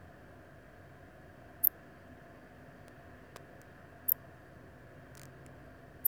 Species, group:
Poecilimon antalyaensis, Orthoptera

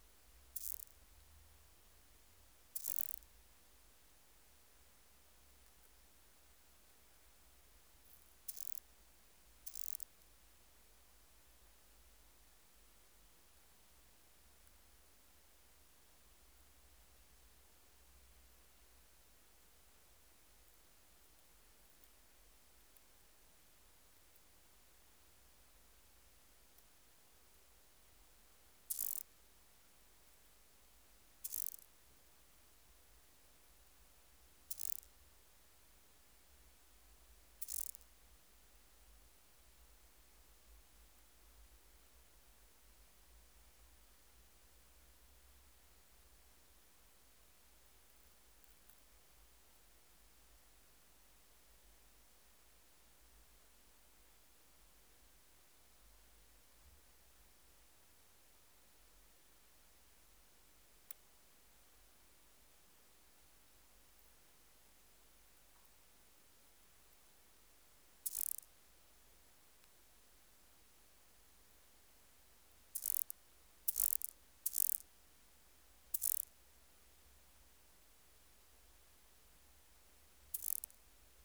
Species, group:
Omocestus petraeus, Orthoptera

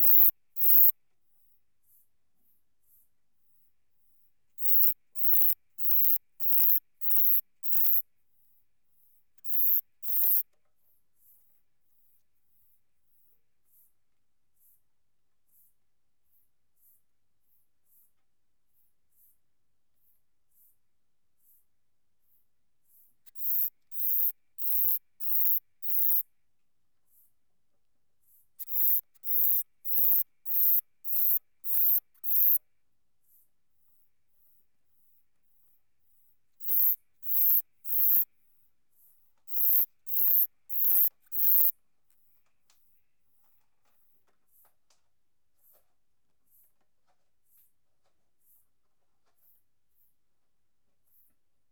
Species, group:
Uromenus brevicollis, Orthoptera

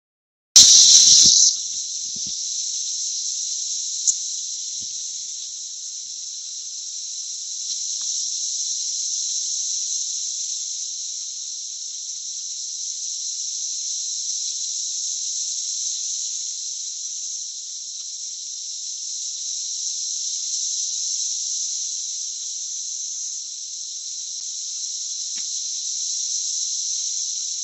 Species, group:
Magicicada cassini, Cicadidae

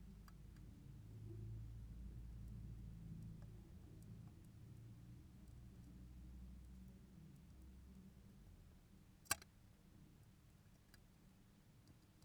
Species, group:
Poecilimon superbus, Orthoptera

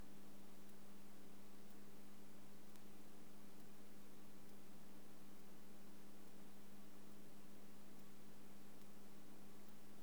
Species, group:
Ctenodecticus major, Orthoptera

